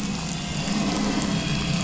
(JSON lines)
{"label": "anthrophony, boat engine", "recorder": "SoundTrap 500"}